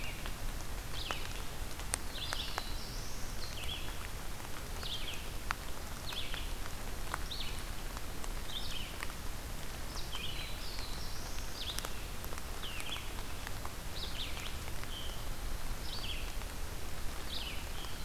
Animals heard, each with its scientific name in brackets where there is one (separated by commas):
Black-throated Blue Warbler (Setophaga caerulescens), Scarlet Tanager (Piranga olivacea), Red-eyed Vireo (Vireo olivaceus)